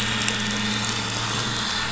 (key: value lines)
label: anthrophony, boat engine
recorder: SoundTrap 500